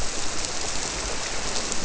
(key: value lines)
label: biophony
recorder: SoundTrap 300